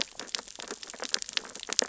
{"label": "biophony, sea urchins (Echinidae)", "recorder": "SoundTrap 600 or HydroMoth"}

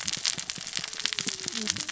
{"label": "biophony, cascading saw", "recorder": "SoundTrap 600 or HydroMoth"}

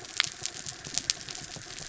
{"label": "anthrophony, mechanical", "recorder": "SoundTrap 300"}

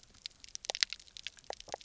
{"label": "biophony", "recorder": "SoundTrap 300"}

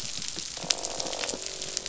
{"label": "biophony, croak", "recorder": "SoundTrap 500"}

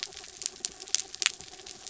{"label": "anthrophony, mechanical", "recorder": "SoundTrap 300"}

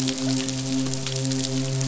{"label": "biophony, midshipman", "recorder": "SoundTrap 500"}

